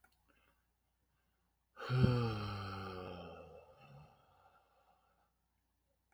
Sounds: Sigh